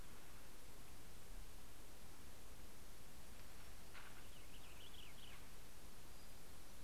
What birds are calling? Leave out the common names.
Haemorhous purpureus